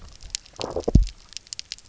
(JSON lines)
{"label": "biophony, low growl", "recorder": "SoundTrap 300"}